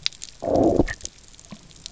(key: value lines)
label: biophony, low growl
recorder: SoundTrap 300